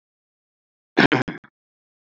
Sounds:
Throat clearing